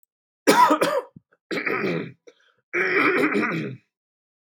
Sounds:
Throat clearing